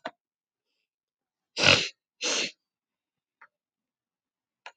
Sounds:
Sniff